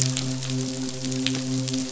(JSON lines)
{"label": "biophony, midshipman", "recorder": "SoundTrap 500"}